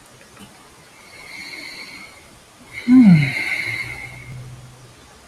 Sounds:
Sigh